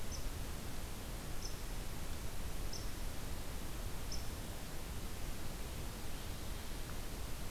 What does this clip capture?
unidentified call